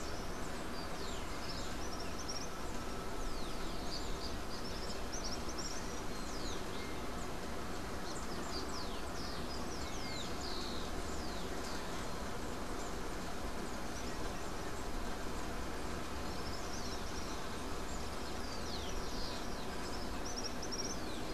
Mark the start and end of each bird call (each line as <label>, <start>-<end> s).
Common Tody-Flycatcher (Todirostrum cinereum), 0.0-2.7 s
Rufous-collared Sparrow (Zonotrichia capensis), 3.0-11.9 s
Common Tody-Flycatcher (Todirostrum cinereum), 4.2-6.0 s
Common Tody-Flycatcher (Todirostrum cinereum), 16.0-21.3 s
Yellow-backed Oriole (Icterus chrysater), 20.0-21.3 s